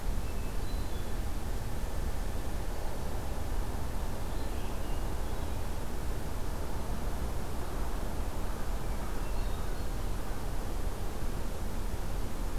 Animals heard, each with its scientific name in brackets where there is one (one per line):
Hermit Thrush (Catharus guttatus)
Red-eyed Vireo (Vireo olivaceus)